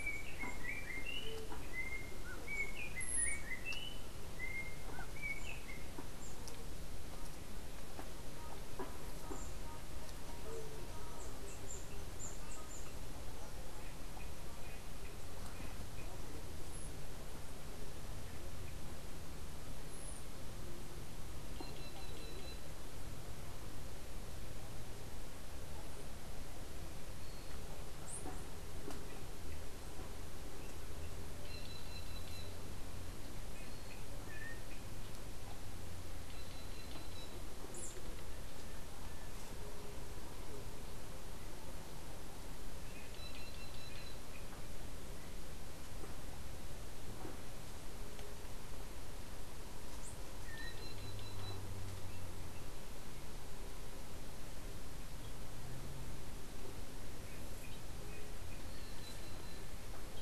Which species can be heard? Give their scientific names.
Icterus chrysater, Cyanocorax yncas